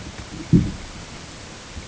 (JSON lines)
{"label": "ambient", "recorder": "HydroMoth"}